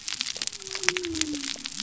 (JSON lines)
{"label": "biophony", "recorder": "SoundTrap 300"}